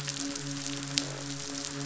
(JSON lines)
{"label": "biophony, midshipman", "recorder": "SoundTrap 500"}